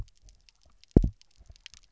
{"label": "biophony, double pulse", "recorder": "SoundTrap 300"}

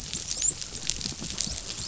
{"label": "biophony, dolphin", "recorder": "SoundTrap 500"}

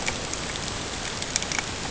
{"label": "ambient", "recorder": "HydroMoth"}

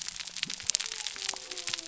{"label": "biophony", "recorder": "SoundTrap 300"}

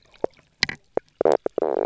{"label": "biophony, knock croak", "recorder": "SoundTrap 300"}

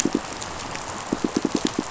{"label": "biophony, pulse", "recorder": "SoundTrap 500"}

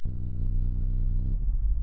{"label": "anthrophony, boat engine", "recorder": "SoundTrap 300"}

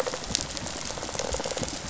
{"label": "biophony, rattle response", "recorder": "SoundTrap 500"}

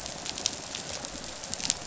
{"label": "biophony, rattle response", "recorder": "SoundTrap 500"}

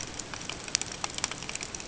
{"label": "ambient", "recorder": "HydroMoth"}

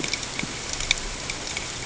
{"label": "ambient", "recorder": "HydroMoth"}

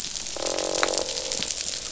{"label": "biophony, croak", "recorder": "SoundTrap 500"}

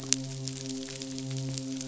{"label": "biophony, midshipman", "recorder": "SoundTrap 500"}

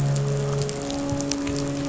{"label": "anthrophony, boat engine", "recorder": "SoundTrap 500"}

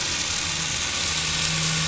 {"label": "anthrophony, boat engine", "recorder": "SoundTrap 500"}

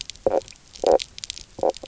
{"label": "biophony, knock croak", "recorder": "SoundTrap 300"}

